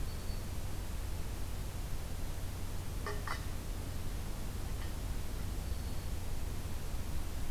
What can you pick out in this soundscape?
Black-throated Green Warbler